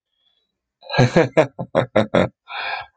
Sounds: Laughter